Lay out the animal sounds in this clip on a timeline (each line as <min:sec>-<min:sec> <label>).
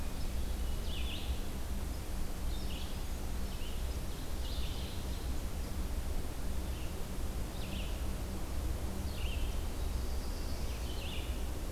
0:00.0-0:11.7 Red-eyed Vireo (Vireo olivaceus)
0:09.6-0:10.9 Black-throated Blue Warbler (Setophaga caerulescens)